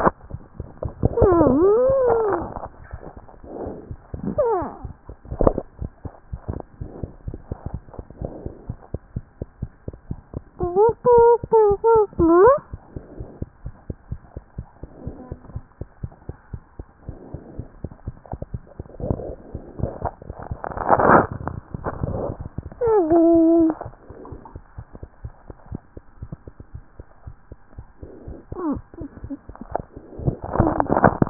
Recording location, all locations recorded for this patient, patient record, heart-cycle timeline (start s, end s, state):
pulmonary valve (PV)
aortic valve (AV)+pulmonary valve (PV)+mitral valve (MV)
#Age: Child
#Sex: Female
#Height: 83.0 cm
#Weight: 11.1 kg
#Pregnancy status: False
#Murmur: Absent
#Murmur locations: nan
#Most audible location: nan
#Systolic murmur timing: nan
#Systolic murmur shape: nan
#Systolic murmur grading: nan
#Systolic murmur pitch: nan
#Systolic murmur quality: nan
#Diastolic murmur timing: nan
#Diastolic murmur shape: nan
#Diastolic murmur grading: nan
#Diastolic murmur pitch: nan
#Diastolic murmur quality: nan
#Outcome: Normal
#Campaign: 2014 screening campaign
0.00	13.09	unannotated
13.09	13.18	diastole
13.18	13.26	S1
13.26	13.40	systole
13.40	13.46	S2
13.46	13.66	diastole
13.66	13.74	S1
13.74	13.88	systole
13.88	13.96	S2
13.96	14.12	diastole
14.12	14.20	S1
14.20	14.36	systole
14.36	14.44	S2
14.44	14.58	diastole
14.58	14.68	S1
14.68	14.80	systole
14.80	14.90	S2
14.90	15.06	diastole
15.06	15.13	S1
15.13	15.30	systole
15.30	15.38	S2
15.38	15.54	diastole
15.54	15.64	S1
15.64	15.78	systole
15.78	15.88	S2
15.88	16.04	diastole
16.04	16.12	S1
16.12	16.28	systole
16.28	16.36	S2
16.36	16.54	diastole
16.54	16.62	S1
16.62	16.78	systole
16.78	16.86	S2
16.86	17.08	diastole
17.08	17.16	S1
17.16	17.32	systole
17.32	17.42	S2
17.42	17.53	diastole
17.53	31.30	unannotated